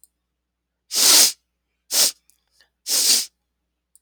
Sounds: Sniff